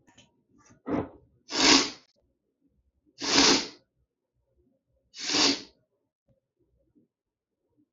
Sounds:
Sneeze